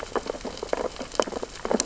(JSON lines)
{"label": "biophony, sea urchins (Echinidae)", "recorder": "SoundTrap 600 or HydroMoth"}